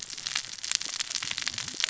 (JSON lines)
{"label": "biophony, cascading saw", "recorder": "SoundTrap 600 or HydroMoth"}